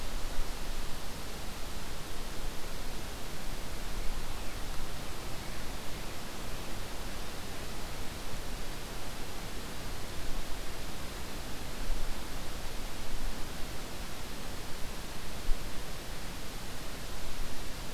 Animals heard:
forest ambience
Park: Hubbard Brook Experimental Forest